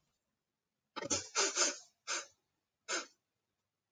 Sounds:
Sniff